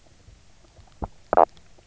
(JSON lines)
{"label": "biophony, knock croak", "recorder": "SoundTrap 300"}
{"label": "biophony, stridulation", "recorder": "SoundTrap 300"}